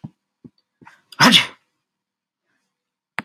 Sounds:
Sneeze